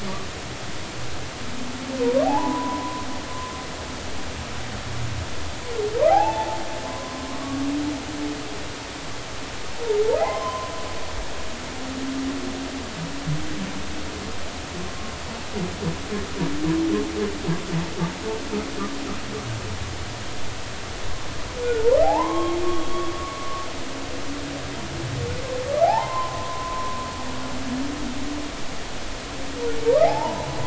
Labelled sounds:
2.2	3.0	humpback whale, 0.80 to 1.1 kHz
6.1	7.6	humpback whale, 0.80 to 1.3 kHz
10.2	10.7	humpback whale, 0.80 to 2.1 kHz
22.0	22.9	humpback whale, 0.80 to 3.3 kHz
25.8	27.0	humpback whale, 0.80 to 1.1 kHz
30.0	30.5	humpback whale, 0.80 to 1.1 kHz

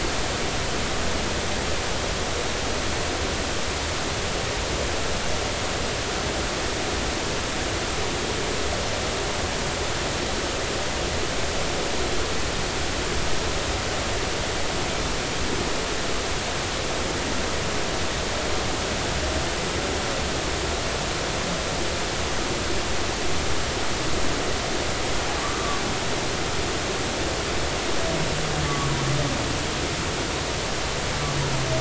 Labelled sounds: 28.7	28.9	humpback whale, 1.1 to 1.2 kHz

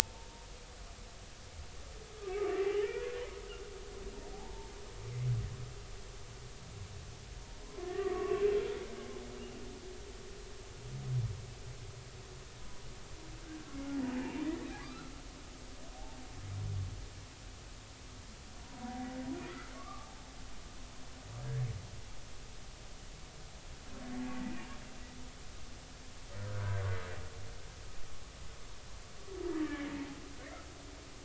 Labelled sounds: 1.0	1.5	humpback whale, 0.83 to 0.96 kHz
2.5	3.1	humpback whale, 1.7 to 3.0 kHz
4.3	4.7	humpback whale, 0.80 to 0.99 kHz
7.8	8.4	humpback whale, 0.99 to 2.0 kHz
12.6	12.9	humpback whale, 0.96 to 1.0 kHz
14.8	15.1	humpback whale, 1.1 to 1.5 kHz
19.7	20.1	humpback whale, 1.0 to 1.3 kHz
21.4	21.7	humpback whale, 1.6 to 1.8 kHz
24.4	24.7	humpback whale, 1.8 to 2.5 kHz
29.5	29.9	humpback whale, 1.6 to 2.0 kHz

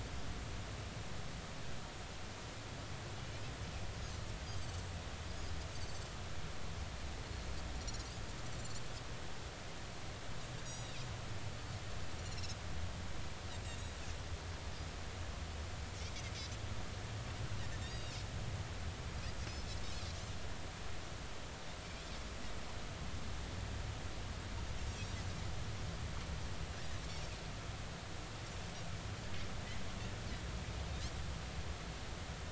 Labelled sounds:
5.9	6.2	Pacific white-sided dolphin, 7.4 to 7.6 kHz
8.5	8.8	Pacific white-sided dolphin, 7.1 to 7.5 kHz
10.6	11.0	Pacific white-sided dolphin, 3.6 to 7.9 kHz
12.2	12.6	Pacific white-sided dolphin, 3.8 to 5.8 kHz
17.8	18.1	Pacific white-sided dolphin, 3.6 to 4.9 kHz
19.4	19.7	Pacific white-sided dolphin, 5.0 to 5.3 kHz

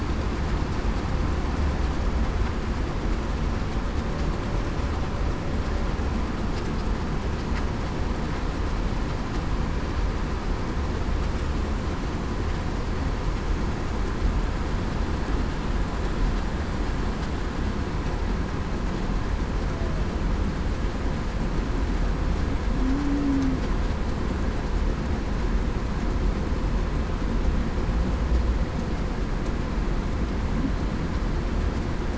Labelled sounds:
22.8	23.5	humpback whale, 0.23 to 0.30 kHz

